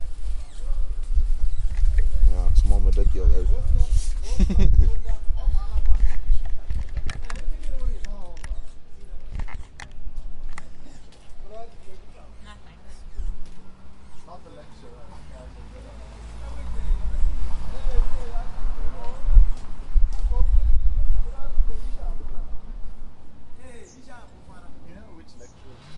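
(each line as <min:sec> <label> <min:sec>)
0:00.0 A door screeches periodically. 0:25.9
0:02.2 A man is speaking with a British accent. 0:03.7
0:04.1 A person giggles abruptly with a rising pitch. 0:05.2
0:05.9 A rumbling of objects with an irregular short pattern in a smoky environment. 0:10.8
0:14.6 Men talking faintly in the distance. 0:15.4
0:16.4 People are talking faintly in a windy, smoky environment. 0:22.6
0:23.6 A man is speaking in a faint, distant voice. 0:24.3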